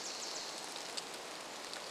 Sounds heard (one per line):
rain
Wilson's Warbler song